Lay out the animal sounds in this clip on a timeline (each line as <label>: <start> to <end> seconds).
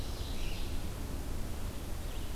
Ovenbird (Seiurus aurocapilla): 0.0 to 1.2 seconds
Red-eyed Vireo (Vireo olivaceus): 0.0 to 2.3 seconds
Scarlet Tanager (Piranga olivacea): 1.6 to 2.3 seconds